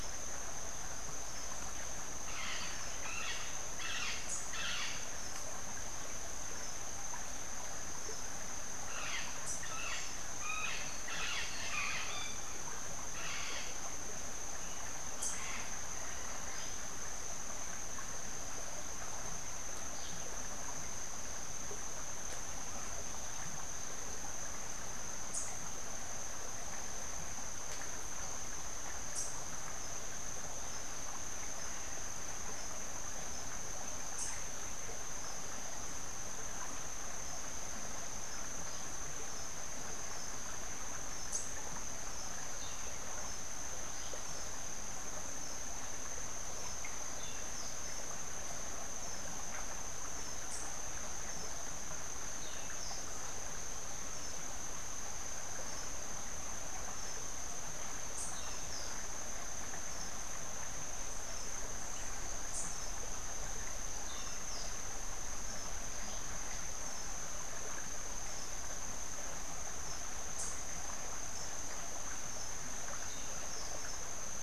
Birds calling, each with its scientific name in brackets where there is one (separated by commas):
White-fronted Parrot (Amazona albifrons)